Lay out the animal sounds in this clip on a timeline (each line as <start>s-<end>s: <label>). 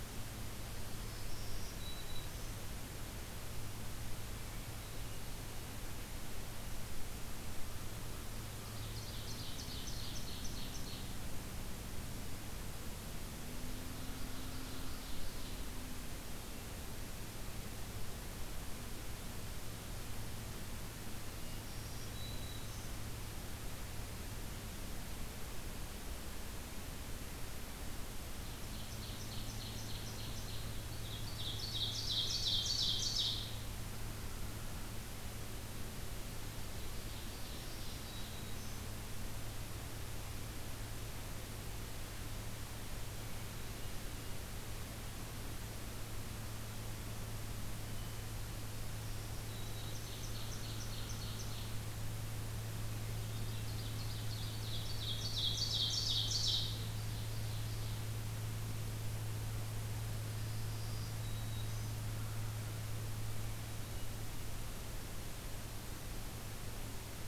0.7s-2.5s: Black-throated Green Warbler (Setophaga virens)
4.5s-5.8s: Hermit Thrush (Catharus guttatus)
7.6s-8.9s: American Crow (Corvus brachyrhynchos)
8.7s-11.2s: Ovenbird (Seiurus aurocapilla)
13.5s-15.6s: Ovenbird (Seiurus aurocapilla)
13.9s-15.3s: American Crow (Corvus brachyrhynchos)
16.2s-17.2s: Hermit Thrush (Catharus guttatus)
21.2s-21.7s: Hermit Thrush (Catharus guttatus)
21.3s-23.0s: Black-throated Green Warbler (Setophaga virens)
28.4s-33.6s: Ovenbird (Seiurus aurocapilla)
32.2s-33.1s: Hermit Thrush (Catharus guttatus)
36.4s-38.2s: Ovenbird (Seiurus aurocapilla)
37.4s-38.9s: Black-throated Green Warbler (Setophaga virens)
43.1s-44.4s: Hermit Thrush (Catharus guttatus)
47.8s-48.3s: Hermit Thrush (Catharus guttatus)
48.9s-50.1s: Black-throated Green Warbler (Setophaga virens)
49.8s-51.7s: Ovenbird (Seiurus aurocapilla)
52.7s-53.9s: Hermit Thrush (Catharus guttatus)
52.7s-58.1s: Ovenbird (Seiurus aurocapilla)
60.3s-61.9s: Black-throated Green Warbler (Setophaga virens)
62.0s-63.1s: American Crow (Corvus brachyrhynchos)
63.3s-64.3s: Hermit Thrush (Catharus guttatus)